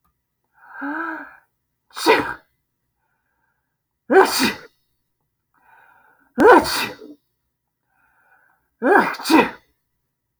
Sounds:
Sneeze